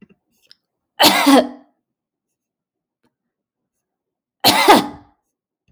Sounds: Cough